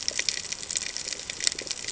{"label": "ambient", "recorder": "HydroMoth"}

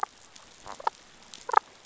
{"label": "biophony, damselfish", "recorder": "SoundTrap 500"}
{"label": "biophony", "recorder": "SoundTrap 500"}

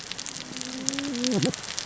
{"label": "biophony, cascading saw", "recorder": "SoundTrap 600 or HydroMoth"}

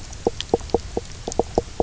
{"label": "biophony, knock croak", "recorder": "SoundTrap 300"}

